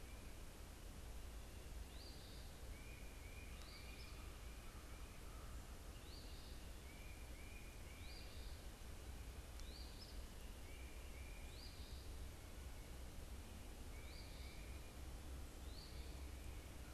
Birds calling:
Tufted Titmouse (Baeolophus bicolor), Eastern Phoebe (Sayornis phoebe)

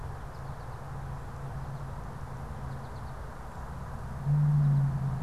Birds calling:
American Goldfinch (Spinus tristis)

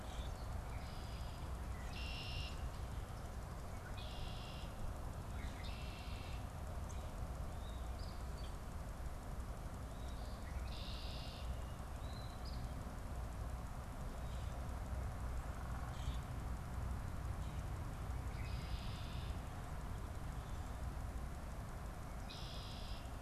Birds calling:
Red-winged Blackbird (Agelaius phoeniceus), Eastern Phoebe (Sayornis phoebe), Common Grackle (Quiscalus quiscula)

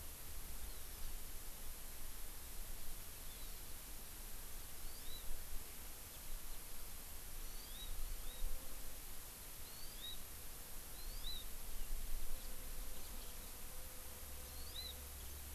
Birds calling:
Hawaii Amakihi (Chlorodrepanis virens)

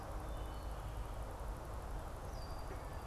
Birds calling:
Wood Thrush (Hylocichla mustelina), Red-winged Blackbird (Agelaius phoeniceus)

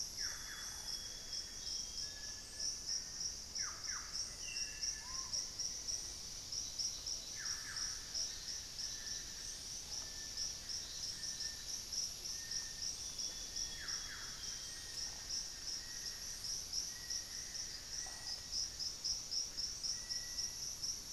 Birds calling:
Lemon-throated Barbet (Eubucco richardsoni), unidentified bird, Amazonian Grosbeak (Cyanoloxia rothschildii), Bartlett's Tinamou (Crypturellus bartletti), Black-faced Antthrush (Formicarius analis), Solitary Black Cacique (Cacicus solitarius)

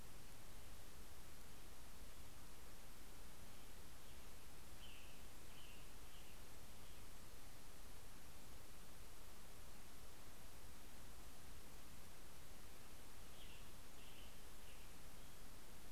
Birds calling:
Western Tanager (Piranga ludoviciana)

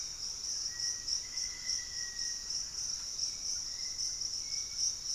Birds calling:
Black-faced Antthrush (Formicarius analis), Hauxwell's Thrush (Turdus hauxwelli), Piratic Flycatcher (Legatus leucophaius), Thrush-like Wren (Campylorhynchus turdinus)

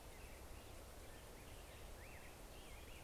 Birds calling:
Black-headed Grosbeak (Pheucticus melanocephalus), American Robin (Turdus migratorius)

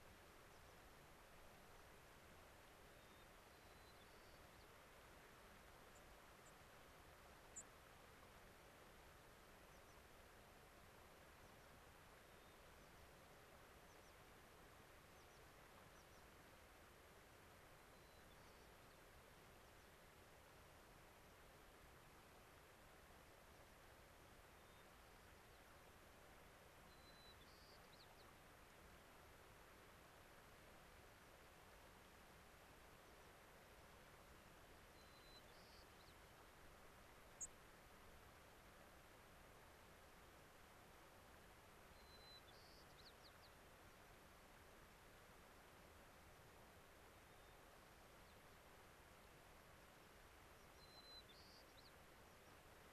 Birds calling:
White-crowned Sparrow (Zonotrichia leucophrys), American Pipit (Anthus rubescens)

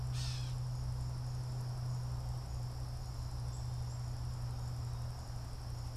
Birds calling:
Gray Catbird (Dumetella carolinensis), Black-capped Chickadee (Poecile atricapillus)

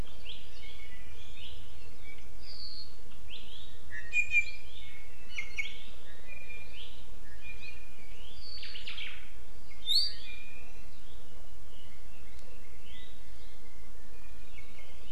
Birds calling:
Apapane (Himatione sanguinea), Omao (Myadestes obscurus)

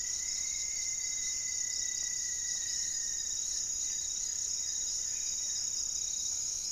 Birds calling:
Hauxwell's Thrush (Turdus hauxwelli), Goeldi's Antbird (Akletos goeldii), unidentified bird, Black-faced Antthrush (Formicarius analis), Rufous-fronted Antthrush (Formicarius rufifrons)

